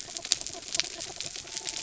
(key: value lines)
label: anthrophony, mechanical
recorder: SoundTrap 300

label: biophony
recorder: SoundTrap 300